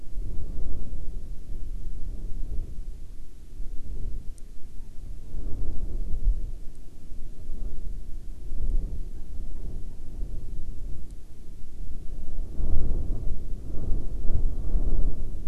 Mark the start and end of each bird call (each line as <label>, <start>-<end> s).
Hawaiian Petrel (Pterodroma sandwichensis), 3.6-10.5 s